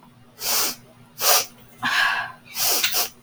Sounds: Sniff